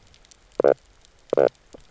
{"label": "biophony, knock croak", "recorder": "SoundTrap 300"}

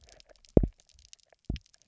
{"label": "biophony, double pulse", "recorder": "SoundTrap 300"}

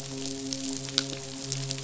{"label": "biophony, midshipman", "recorder": "SoundTrap 500"}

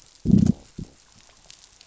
{"label": "biophony, growl", "recorder": "SoundTrap 500"}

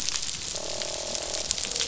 {"label": "biophony, croak", "recorder": "SoundTrap 500"}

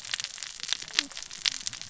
{"label": "biophony, cascading saw", "recorder": "SoundTrap 600 or HydroMoth"}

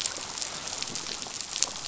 {"label": "biophony, chatter", "recorder": "SoundTrap 500"}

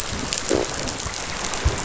{"label": "biophony", "recorder": "SoundTrap 500"}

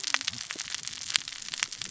{"label": "biophony, cascading saw", "recorder": "SoundTrap 600 or HydroMoth"}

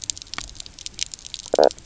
{"label": "biophony, knock croak", "recorder": "SoundTrap 300"}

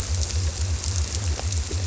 {"label": "biophony", "recorder": "SoundTrap 300"}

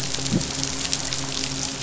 {"label": "biophony", "recorder": "SoundTrap 500"}
{"label": "biophony, midshipman", "recorder": "SoundTrap 500"}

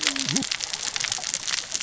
{"label": "biophony, cascading saw", "recorder": "SoundTrap 600 or HydroMoth"}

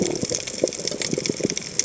{"label": "biophony", "recorder": "HydroMoth"}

